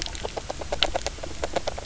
{"label": "biophony, knock croak", "recorder": "SoundTrap 300"}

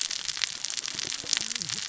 {"label": "biophony, cascading saw", "recorder": "SoundTrap 600 or HydroMoth"}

